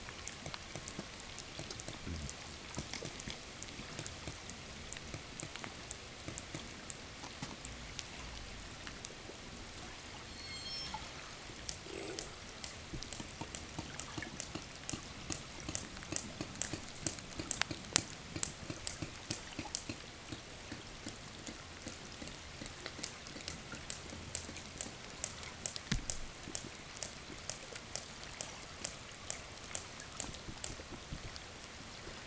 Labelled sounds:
9.9	11.5	killer whale, southern resident, 0 to 8.0 kHz
11.2	31.6	killer whale, 0 to 8.0 kHz

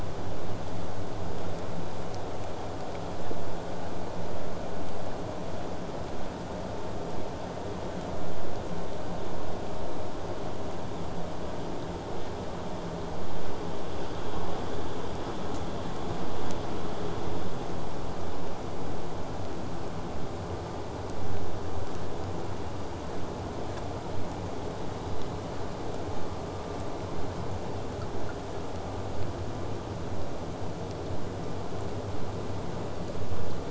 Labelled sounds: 22.6	23.1	killer whale, southern resident, 1.2 to 4.8 kHz
24.7	25.6	killer whale, southern resident, 1.6 to 4.4 kHz
26.9	27.3	killer whale, southern resident, 1.6 to 4.3 kHz

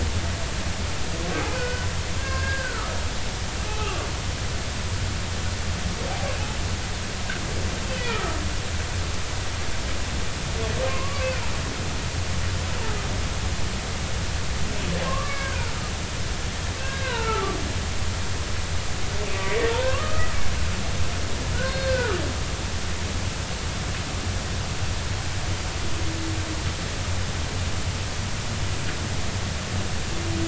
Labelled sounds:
1.5	3.0	humpback whale, 1.0 to 2.5 kHz
7.9	8.3	humpback whale, 1.2 to 2.7 kHz
10.8	11.3	humpback whale, 0.96 to 1.2 kHz
15.0	15.8	humpback whale, 0.99 to 2.3 kHz
16.8	17.6	humpback whale, 0.86 to 1.7 kHz
19.3	20.4	humpback whale, 0.86 to 2.0 kHz
21.5	22.2	humpback whale, 1.1 to 4.3 kHz

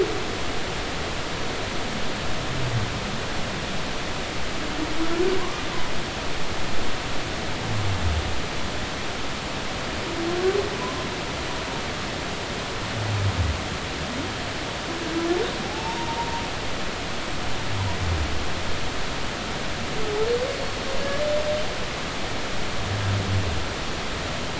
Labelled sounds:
5.4	5.6	humpback whale, 0.93 to 1.2 kHz
15.6	16.4	humpback whale, 0.80 to 0.99 kHz
20.6	20.9	humpback whale, 4.3 to 4.4 kHz

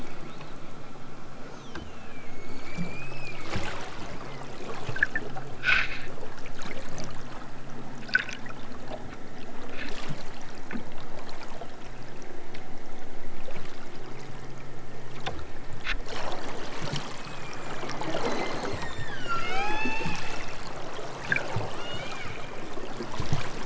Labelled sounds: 18.1	20.3	killer whale, southern Alaska resident, 0.37 to 8.0 kHz
21.5	22.5	killer whale, southern Alaska resident, 0.69 to 7.7 kHz

